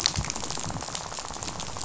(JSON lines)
{"label": "biophony, rattle", "recorder": "SoundTrap 500"}